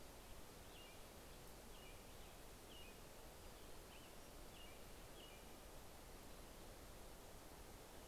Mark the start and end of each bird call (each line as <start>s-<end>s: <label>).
0.0s-6.3s: American Robin (Turdus migratorius)
3.0s-4.7s: Pacific-slope Flycatcher (Empidonax difficilis)